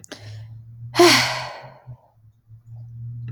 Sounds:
Sigh